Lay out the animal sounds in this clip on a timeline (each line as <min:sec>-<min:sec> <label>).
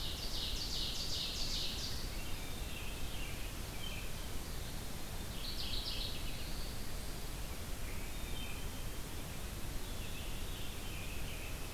0:00.0-0:02.4 Ovenbird (Seiurus aurocapilla)
0:02.2-0:04.3 American Robin (Turdus migratorius)
0:02.2-0:03.4 Veery (Catharus fuscescens)
0:05.1-0:06.4 Mourning Warbler (Geothlypis philadelphia)
0:05.9-0:07.1 Black-throated Blue Warbler (Setophaga caerulescens)
0:06.8-0:08.2 American Robin (Turdus migratorius)
0:08.1-0:09.0 Black-capped Chickadee (Poecile atricapillus)
0:09.7-0:11.0 Veery (Catharus fuscescens)
0:09.9-0:11.7 American Robin (Turdus migratorius)